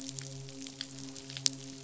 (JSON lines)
{"label": "biophony, midshipman", "recorder": "SoundTrap 500"}